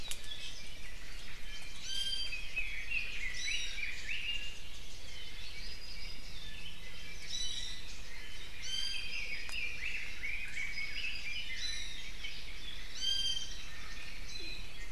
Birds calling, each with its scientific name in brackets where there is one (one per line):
Apapane (Himatione sanguinea)
Iiwi (Drepanis coccinea)
Red-billed Leiothrix (Leiothrix lutea)
Warbling White-eye (Zosterops japonicus)
Omao (Myadestes obscurus)